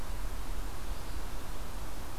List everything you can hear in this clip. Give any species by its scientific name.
forest ambience